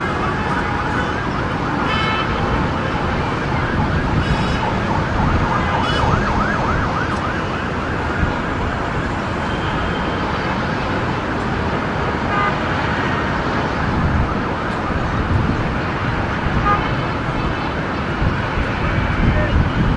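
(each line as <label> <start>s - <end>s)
An ambulance honks repeatedly in heavy traffic, with occasional car horns sounding in the background. 0.1s - 19.8s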